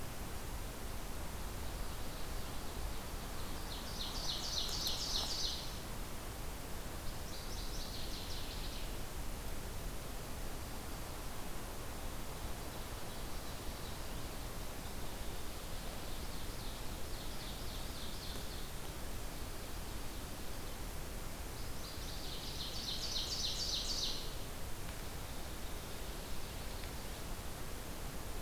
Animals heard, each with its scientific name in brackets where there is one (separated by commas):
Ovenbird (Seiurus aurocapilla), Northern Waterthrush (Parkesia noveboracensis)